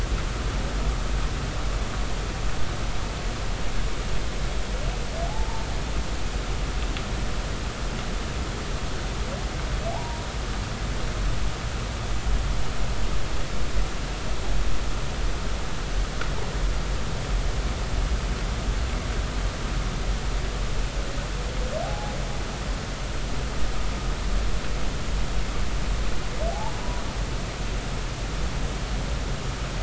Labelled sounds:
5.2	5.7	humpback whale, 0.80 to 0.99 kHz
9.9	10.2	humpback whale, 0.80 to 1.0 kHz
21.8	22.1	humpback whale, 0.80 to 0.90 kHz
26.5	26.8	humpback whale, 0.80 to 0.99 kHz

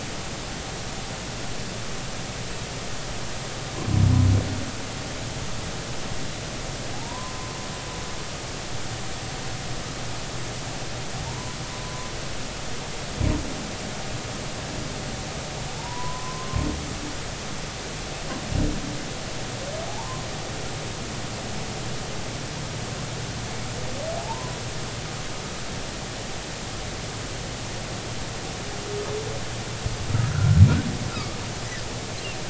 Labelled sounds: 6.9	7.5	humpback whale, 0.80 to 1.2 kHz
11.3	12.1	humpback whale, 0.86 to 1.1 kHz
15.7	16.6	humpback whale, 0.80 to 1.2 kHz
20.9	21.3	humpback whale, 0.80 to 1.1 kHz
24.2	24.6	humpback whale, 0.80 to 1.1 kHz
30.1	30.6	humpback whale, 1.2 to 1.6 kHz
31.1	31.4	humpback whale, 1.1 to 1.4 kHz

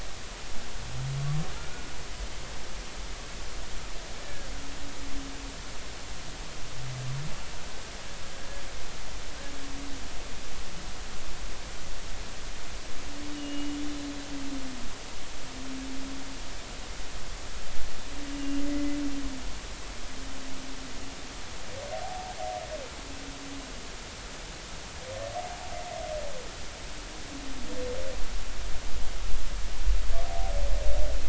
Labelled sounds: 1.6	1.9	humpback whale, 1.3 to 1.5 kHz
4.2	4.5	humpback whale, 1.5 to 1.9 kHz
13.4	13.8	humpback whale, 2.8 to 3.0 kHz
18.3	18.6	humpback whale, 2.8 to 2.9 kHz
22.0	22.4	humpback whale, 0.80 to 0.93 kHz
25.4	25.7	humpback whale, 0.80 to 0.93 kHz

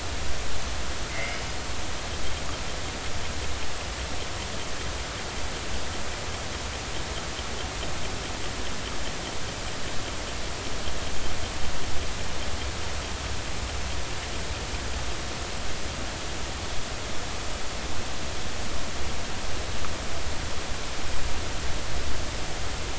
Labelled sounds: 1.1	1.4	killer whale, northern resident, 1.9 to 2.3 kHz

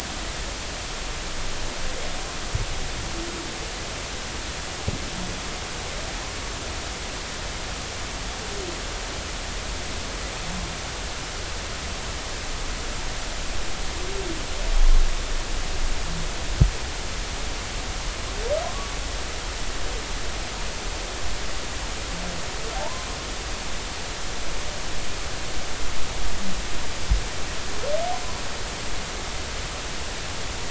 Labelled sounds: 22.7	23.1	humpback whale, 0.80 to 1.1 kHz

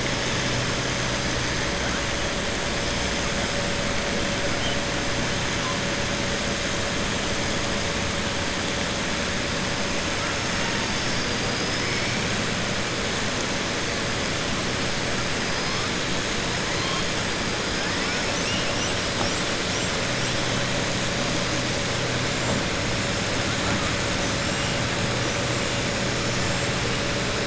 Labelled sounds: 18.3	18.9	killer whale, southern resident, 2.6 to 3.2 kHz

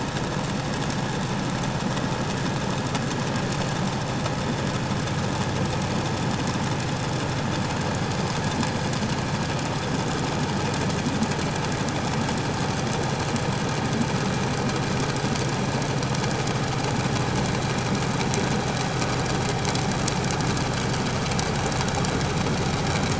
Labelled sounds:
8.0	9.1	killer whale, 4.4 to 5.1 kHz

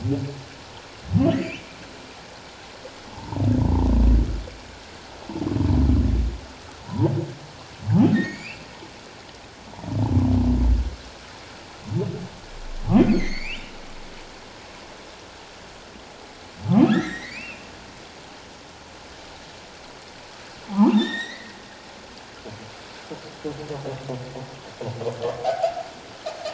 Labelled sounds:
1.1	1.7	humpback whale, 2.2 to 3.2 kHz
3.1	3.4	humpback whale, 0.81 to 1.1 kHz
6.8	7.1	humpback whale, 0.84 to 1.1 kHz
8.1	8.7	humpback whale, 1.7 to 5.0 kHz
13.0	13.8	humpback whale, 1.8 to 4.9 kHz
16.9	17.7	humpback whale, 1.2 to 4.1 kHz
20.7	21.6	humpback whale, 0.78 to 7.7 kHz
25.4	25.7	humpback whale, 0.78 to 0.88 kHz

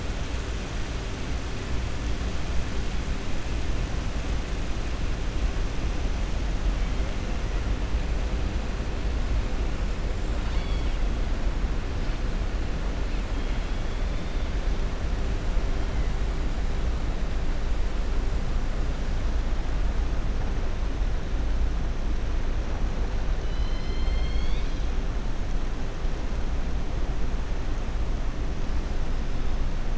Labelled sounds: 10.4	11.0	killer whale, southern resident, 1.6 to 5.3 kHz
23.4	24.9	killer whale, southern resident, 2.1 to 6.6 kHz

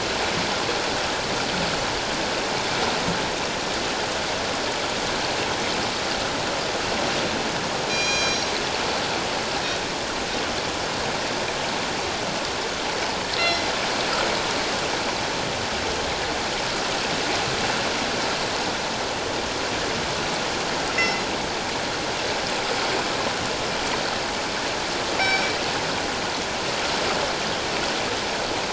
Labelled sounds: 7.9	8.5	killer whale, northern resident, G clan, 2.3 to 7.3 kHz
13.4	13.6	killer whale, northern resident, G clan, 2.0 to 5.7 kHz
20.9	21.2	killer whale, northern resident, G clan, 1.9 to 2.1 kHz
25.2	25.6	killer whale, northern resident, G clan, 1.5 to 5.8 kHz

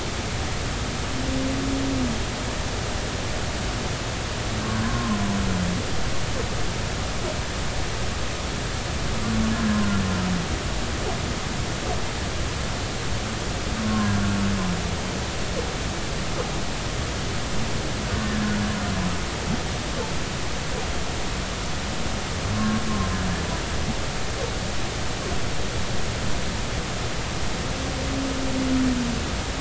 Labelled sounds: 4.8	5.2	humpback whale, 0.99 to 1.1 kHz
13.8	14.2	humpback whale, 0.99 to 1.1 kHz
22.5	22.8	humpback whale, 1.0 to 1.1 kHz

